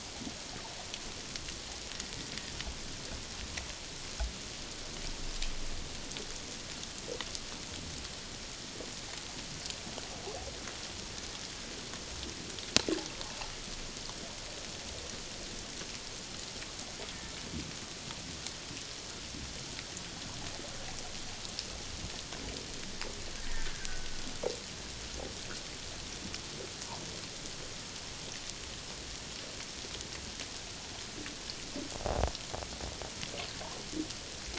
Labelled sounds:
23.4	24.1	killer whale, Bigg's (transient), 1.4 to 1.9 kHz

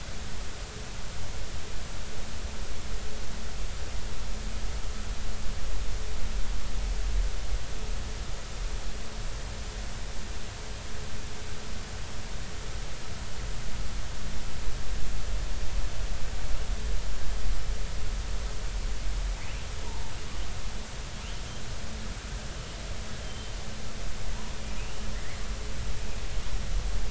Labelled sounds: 19.8	20.1	killer whale, southern resident, J clan, L pod, call S02iii, 0.83 to 1.0 kHz
23.2	23.5	killer whale, southern resident, J clan, L pod, call S02iii, 3.0 to 3.2 kHz
24.8	25.0	killer whale, southern resident, J clan, L pod, 2.4 to 3.0 kHz

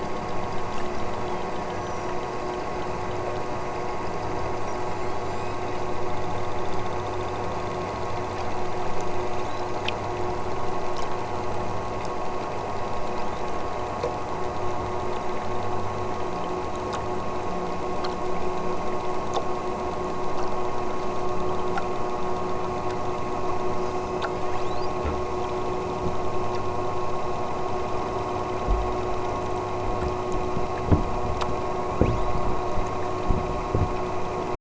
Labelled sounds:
0.9	2.3	killer whale, southern Alaska resident, 2.9 to 8.0 kHz
4.6	5.6	killer whale, southern Alaska resident, 3.7 to 8.0 kHz
9.3	9.8	killer whale, southern Alaska resident, 3.5 to 7.3 kHz
12.9	13.5	killer whale, southern Alaska resident, 2.8 to 8.0 kHz
23.7	25.0	killer whale, southern Alaska resident, 2.8 to 8.0 kHz
31.6	32.4	killer whale, southern Alaska resident, 2.8 to 7.8 kHz

